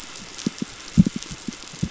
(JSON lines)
{"label": "anthrophony, boat engine", "recorder": "SoundTrap 500"}
{"label": "biophony, pulse", "recorder": "SoundTrap 500"}